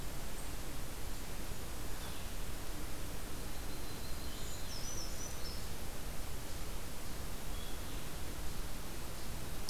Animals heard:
Brown Creeper (Certhia americana), Yellow-rumped Warbler (Setophaga coronata)

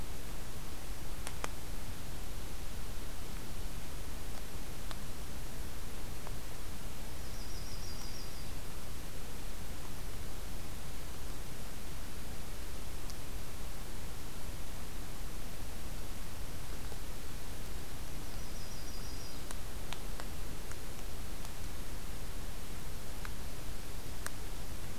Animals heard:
Yellow-rumped Warbler (Setophaga coronata)

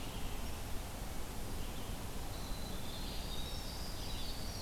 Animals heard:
Red-eyed Vireo (Vireo olivaceus), Winter Wren (Troglodytes hiemalis)

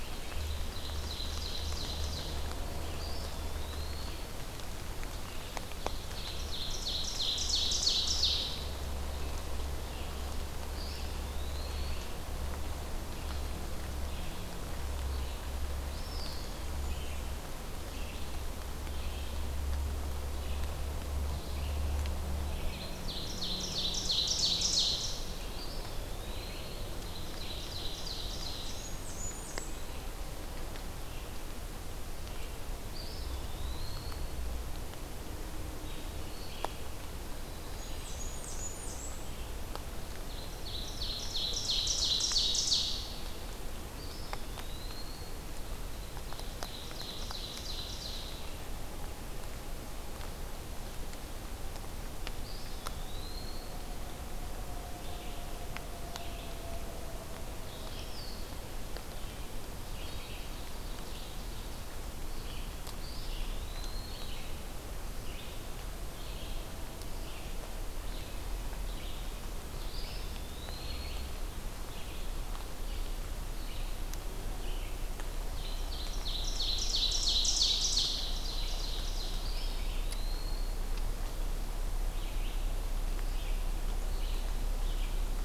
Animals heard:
Blackburnian Warbler (Setophaga fusca), Ovenbird (Seiurus aurocapilla), Eastern Wood-Pewee (Contopus virens), Red-eyed Vireo (Vireo olivaceus)

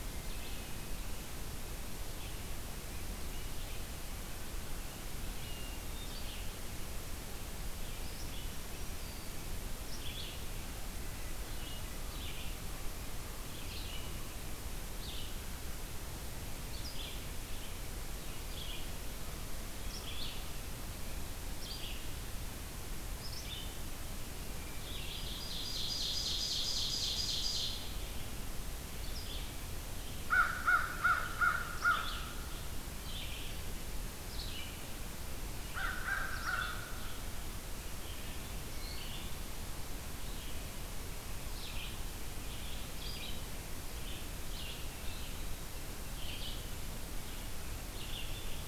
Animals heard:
Hermit Thrush (Catharus guttatus), Ovenbird (Seiurus aurocapilla), Black-throated Green Warbler (Setophaga virens), Red-eyed Vireo (Vireo olivaceus), American Crow (Corvus brachyrhynchos)

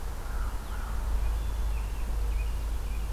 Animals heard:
American Robin (Turdus migratorius), American Crow (Corvus brachyrhynchos)

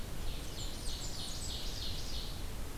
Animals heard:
Blackburnian Warbler (Setophaga fusca), Ovenbird (Seiurus aurocapilla)

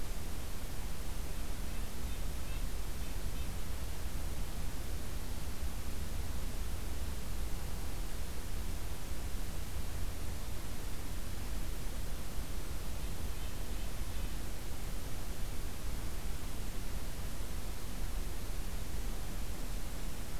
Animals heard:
Red-breasted Nuthatch (Sitta canadensis)

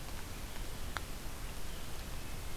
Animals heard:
Wood Thrush (Hylocichla mustelina), Red-eyed Vireo (Vireo olivaceus)

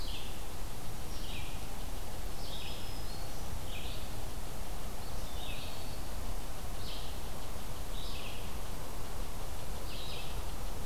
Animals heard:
Black-throated Green Warbler (Setophaga virens), Eastern Wood-Pewee (Contopus virens), Red-eyed Vireo (Vireo olivaceus)

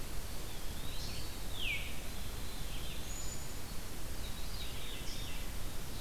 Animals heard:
Eastern Wood-Pewee (Contopus virens), Black-capped Chickadee (Poecile atricapillus), Veery (Catharus fuscescens)

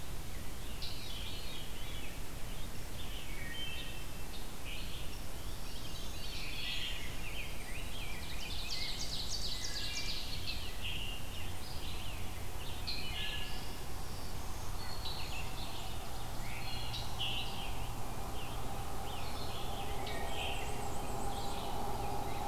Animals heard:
Wood Thrush (Hylocichla mustelina), Ovenbird (Seiurus aurocapilla), Red-eyed Vireo (Vireo olivaceus), Scarlet Tanager (Piranga olivacea), Black-and-white Warbler (Mniotilta varia), Black-throated Green Warbler (Setophaga virens), Rose-breasted Grosbeak (Pheucticus ludovicianus), Veery (Catharus fuscescens)

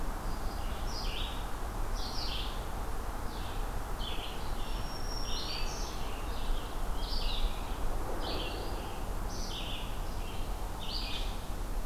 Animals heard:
Black-throated Green Warbler (Setophaga virens), Red-eyed Vireo (Vireo olivaceus)

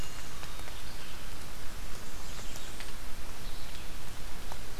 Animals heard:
Hermit Thrush (Catharus guttatus), Blackburnian Warbler (Setophaga fusca), Red-eyed Vireo (Vireo olivaceus)

